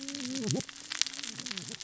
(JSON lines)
{"label": "biophony, cascading saw", "recorder": "SoundTrap 600 or HydroMoth"}